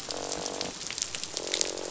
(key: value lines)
label: biophony, croak
recorder: SoundTrap 500